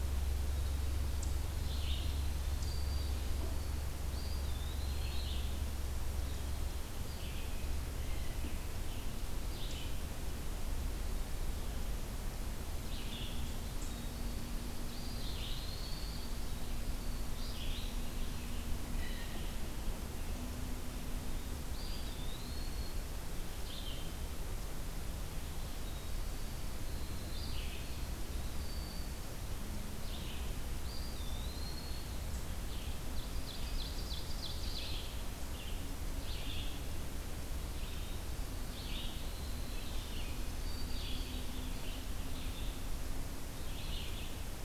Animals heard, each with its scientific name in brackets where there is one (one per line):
Winter Wren (Troglodytes hiemalis)
Red-eyed Vireo (Vireo olivaceus)
Ovenbird (Seiurus aurocapilla)
Black-throated Green Warbler (Setophaga virens)
Blue Jay (Cyanocitta cristata)
Eastern Wood-Pewee (Contopus virens)